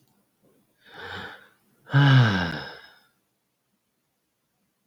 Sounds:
Sigh